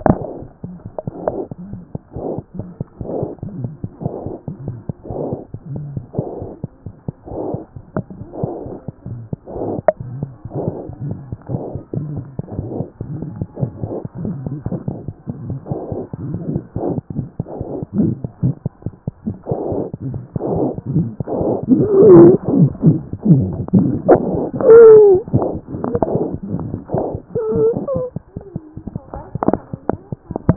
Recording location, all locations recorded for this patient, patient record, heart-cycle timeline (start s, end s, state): mitral valve (MV)
aortic valve (AV)+mitral valve (MV)
#Age: Infant
#Sex: Male
#Height: 60.0 cm
#Weight: 6.5 kg
#Pregnancy status: False
#Murmur: Unknown
#Murmur locations: nan
#Most audible location: nan
#Systolic murmur timing: nan
#Systolic murmur shape: nan
#Systolic murmur grading: nan
#Systolic murmur pitch: nan
#Systolic murmur quality: nan
#Diastolic murmur timing: nan
#Diastolic murmur shape: nan
#Diastolic murmur grading: nan
#Diastolic murmur pitch: nan
#Diastolic murmur quality: nan
#Outcome: Abnormal
#Campaign: 2014 screening campaign
0.00	6.69	unannotated
6.69	6.86	diastole
6.86	6.91	S1
6.91	7.06	systole
7.06	7.12	S2
7.12	7.30	diastole
7.30	7.37	S1
7.37	7.52	systole
7.52	7.58	S2
7.58	7.75	diastole
7.75	7.83	S1
7.83	7.98	systole
7.98	8.04	S2
8.04	8.20	diastole
8.20	8.26	S1
8.26	8.42	systole
8.42	8.48	S2
8.48	8.65	diastole
8.65	8.71	S1
8.71	8.88	systole
8.88	8.93	S2
8.93	9.06	diastole
9.06	9.13	S1
9.13	9.32	systole
9.32	9.38	S2
9.38	9.55	diastole
9.55	9.62	S1
9.62	9.78	systole
9.78	9.83	S2
9.83	9.99	diastole
9.99	10.06	S1
10.06	10.21	systole
10.21	10.28	S2
10.28	10.44	diastole
10.44	30.56	unannotated